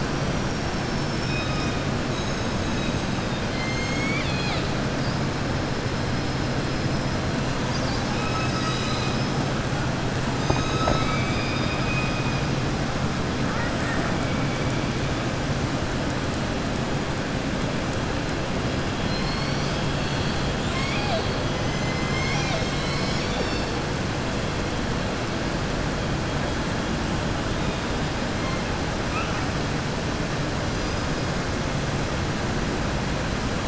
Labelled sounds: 3.1	4.7	killer whale, southern resident, 1.3 to 7.5 kHz
13.4	14.1	killer whale, southern resident, 0.92 to 2.7 kHz
19.0	19.8	killer whale, southern resident, 3.3 to 5.9 kHz
20.5	21.4	killer whale, southern resident, 0.66 to 7.7 kHz
29.0	29.5	killer whale, southern resident, 1.2 to 3.0 kHz

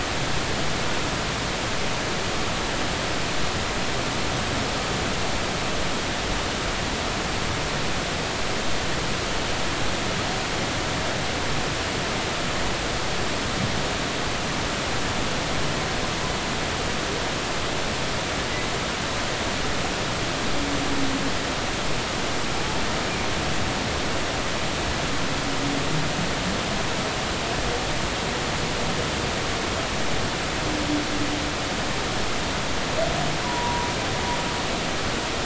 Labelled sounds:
33.4	33.9	humpback whale, 0.90 to 1.2 kHz

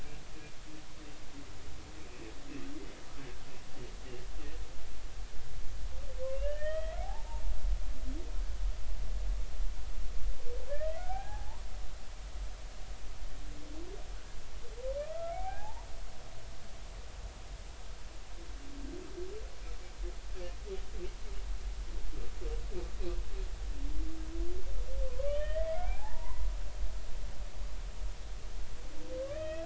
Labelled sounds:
3.5	3.7	humpback whale, 2.6 to 2.8 kHz
6.3	7.3	humpback whale, 0.80 to 3.3 kHz
11.0	11.6	humpback whale, 0.80 to 1.8 kHz
15.1	15.9	humpback whale, 0.80 to 2.6 kHz
25.3	26.5	humpback whale, 0.80 to 3.2 kHz
29.3	29.6	humpback whale, 1.6 to 2.7 kHz

